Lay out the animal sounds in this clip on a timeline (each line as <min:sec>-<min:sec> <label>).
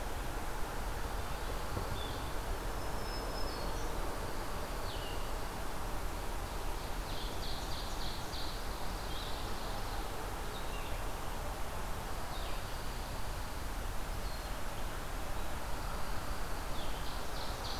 0:00.0-0:17.8 Blue-headed Vireo (Vireo solitarius)
0:00.7-0:02.6 Dark-eyed Junco (Junco hyemalis)
0:02.5-0:04.1 Black-throated Green Warbler (Setophaga virens)
0:05.9-0:08.8 Ovenbird (Seiurus aurocapilla)
0:08.6-0:10.2 Dark-eyed Junco (Junco hyemalis)
0:12.3-0:13.7 Dark-eyed Junco (Junco hyemalis)
0:15.5-0:17.3 Dark-eyed Junco (Junco hyemalis)
0:16.6-0:17.8 Ovenbird (Seiurus aurocapilla)
0:17.2-0:17.8 Black-throated Green Warbler (Setophaga virens)